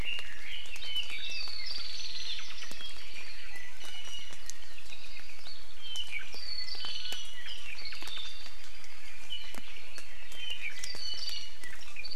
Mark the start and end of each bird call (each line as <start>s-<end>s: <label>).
0.0s-1.6s: Red-billed Leiothrix (Leiothrix lutea)
2.3s-2.6s: Omao (Myadestes obscurus)
3.8s-4.4s: Iiwi (Drepanis coccinea)
4.8s-5.5s: Apapane (Himatione sanguinea)
5.8s-7.4s: Apapane (Himatione sanguinea)
6.3s-6.6s: Warbling White-eye (Zosterops japonicus)
9.0s-11.5s: Apapane (Himatione sanguinea)
10.8s-11.4s: Warbling White-eye (Zosterops japonicus)